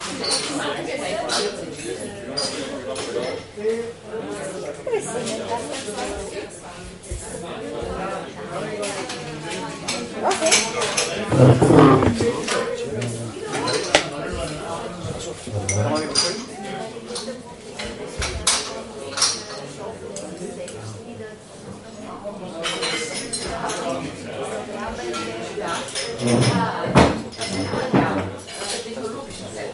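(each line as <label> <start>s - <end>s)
Male and female voices talking in the background of a café. 0.0s - 29.7s
A cup or saucer is placed on another surface with a crisp clinking sound. 0.2s - 4.4s
A glass cup or saucer is placed on another surface, producing a crisp clinking sound. 9.7s - 11.0s
A dry scraping sound as a person stands up from a chair. 11.3s - 12.4s
A glass cup or saucer being placed down with a crisp clinking sound. 15.5s - 19.7s
A cup or saucer is placed on another surface with a crisp clinking sound. 22.4s - 29.2s
A chair scraping on the floor as it moves. 26.0s - 28.3s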